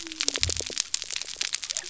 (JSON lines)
{"label": "biophony", "recorder": "SoundTrap 300"}